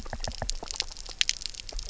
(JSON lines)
{"label": "biophony, knock", "recorder": "SoundTrap 300"}